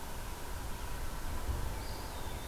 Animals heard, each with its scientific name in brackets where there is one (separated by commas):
Eastern Wood-Pewee (Contopus virens)